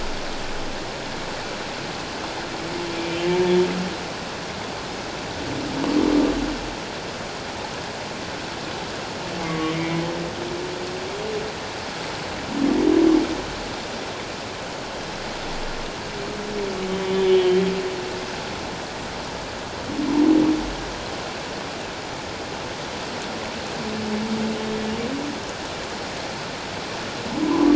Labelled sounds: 3.0	3.2	humpback whale, 2.3 to 2.4 kHz
9.4	10.0	humpback whale, 1.1 to 2.3 kHz
16.9	17.6	humpback whale, 2.9 to 3.5 kHz

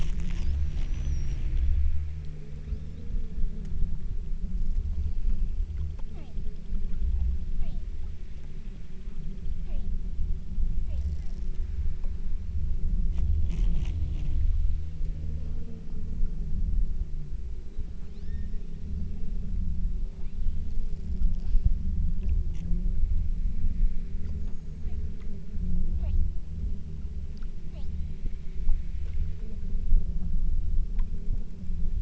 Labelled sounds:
2.8	3.3	killer whale, southern Alaska resident, 3.1 to 7.4 kHz
6.1	6.5	killer whale, southern Alaska resident, 0.53 to 4.4 kHz
7.6	8.0	killer whale, southern Alaska resident, 0.51 to 5.5 kHz
9.7	10.0	killer whale, southern Alaska resident, 0.49 to 5.1 kHz
10.9	11.2	killer whale, southern Alaska resident, 0.45 to 4.9 kHz
18.0	19.4	killer whale, southern Alaska resident, 1.0 to 6.3 kHz
20.1	21.0	killer whale, southern Alaska resident, 1.8 to 3.6 kHz
25.2	25.4	killer whale, southern Alaska resident, 0.83 to 4.2 kHz
26.0	26.5	killer whale, southern Alaska resident, 0.47 to 6.8 kHz
27.7	28.1	killer whale, southern Alaska resident, 0.49 to 8.0 kHz

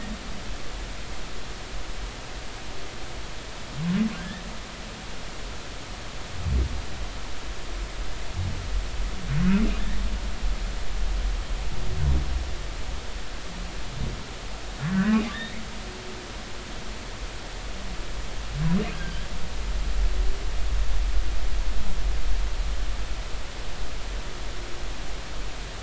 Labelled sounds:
4.2	4.4	humpback whale, 1.5 to 1.9 kHz
14.9	15.6	humpback whale, 1.4 to 2.3 kHz
18.9	19.3	humpback whale, 1.5 to 1.7 kHz

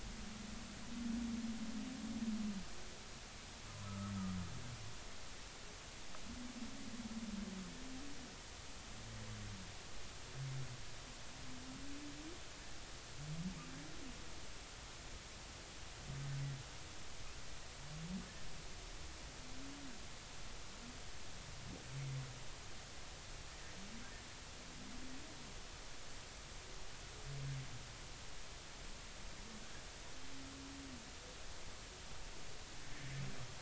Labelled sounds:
3.8	4.1	humpback whale, 1.2 to 1.4 kHz
23.5	23.8	humpback whale, 1.8 to 1.9 kHz

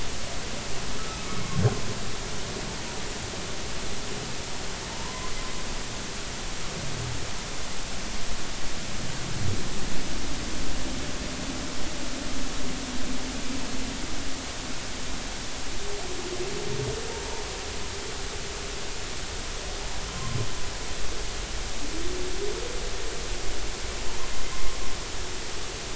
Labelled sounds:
4.9	5.3	humpback whale, 0.86 to 1.1 kHz
20.1	20.4	humpback whale, 0.99 to 1.1 kHz
24.5	24.8	humpback whale, 0.99 to 1.1 kHz

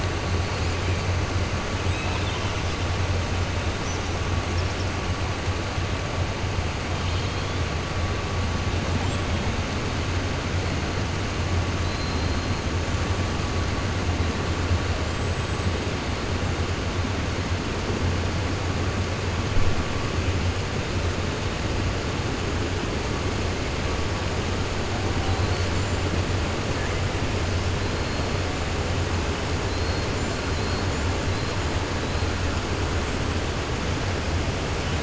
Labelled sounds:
1.8	2.5	killer whale, 2.5 to 4.0 kHz
8.9	9.5	killer whale, 7.2 to 8.0 kHz
11.8	12.5	killer whale, 4.0 to 5.1 kHz
25.3	25.7	killer whale, 4.0 to 5.9 kHz
33.0	33.5	killer whale, 7.4 to 7.9 kHz

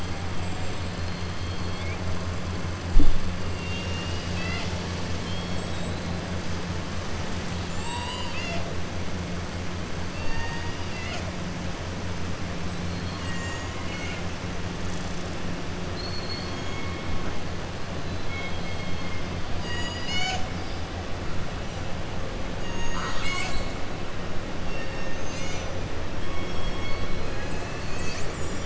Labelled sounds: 3.5	6.1	killer whale, southern resident, 0.85 to 6.5 kHz
12.9	14.3	killer whale, southern resident, 1.1 to 4.3 kHz
15.8	16.8	killer whale, southern resident, 3.2 to 4.7 kHz
19.5	20.5	killer whale, southern resident, 0.76 to 7.8 kHz

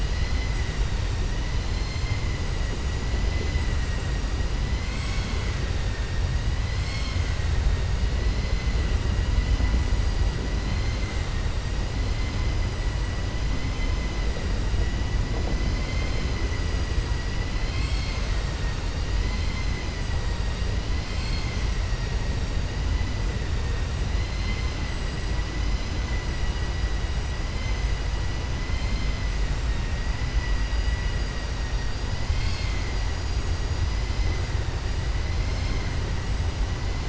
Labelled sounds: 15.8	16.3	vessel noise, 1.5 to 5.3 kHz
24.2	24.8	vessel noise, 2.0 to 5.1 kHz

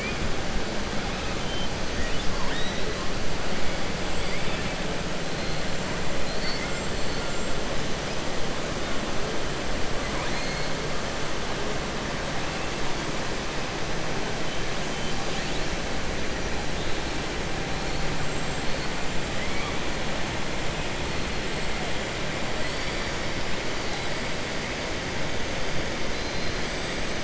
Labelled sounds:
4.1	4.8	killer whale, southern resident, 1.7 to 4.7 kHz
10.0	10.7	killer whale, southern resident, 0.97 to 4.7 kHz
26.1	26.6	killer whale, southern resident, 3.6 to 5.1 kHz

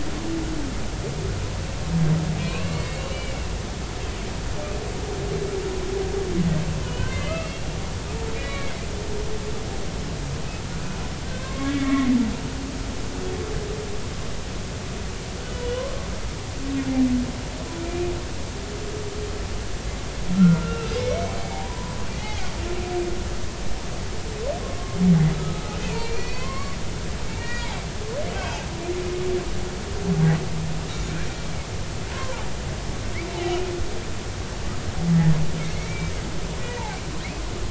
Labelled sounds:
2.4	3.4	humpback whale, 0.99 to 3.9 kHz
6.8	7.7	humpback whale, 2.0 to 3.3 kHz
8.3	8.8	humpback whale, 1.8 to 4.0 kHz
10.7	12.1	humpback whale, 1.0 to 2.3 kHz
17.8	18.1	humpback whale, 2.3 to 2.5 kHz
20.3	22.4	humpback whale, 0.80 to 2.8 kHz
25.3	26.8	humpback whale, 0.96 to 4.8 kHz
27.3	27.7	humpback whale, 1.8 to 4.4 kHz
28.3	28.7	humpback whale, 2.4 to 3.3 kHz
32.1	32.5	humpback whale, 0.80 to 1.1 kHz
35.8	36.1	humpback whale, 2.0 to 2.4 kHz

